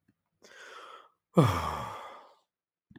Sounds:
Sigh